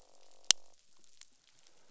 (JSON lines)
{"label": "biophony, croak", "recorder": "SoundTrap 500"}